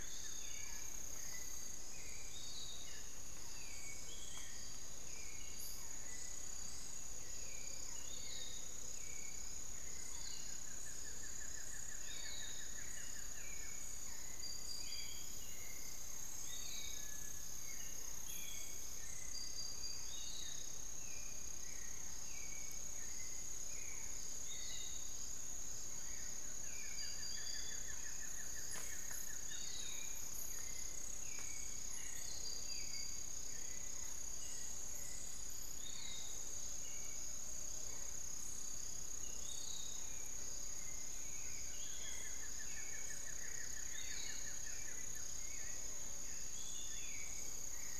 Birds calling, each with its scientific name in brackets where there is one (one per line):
Buff-throated Woodcreeper (Xiphorhynchus guttatus)
Cinereous Tinamou (Crypturellus cinereus)
Piratic Flycatcher (Legatus leucophaius)
Spix's Guan (Penelope jacquacu)
Hauxwell's Thrush (Turdus hauxwelli)
Amazonian Motmot (Momotus momota)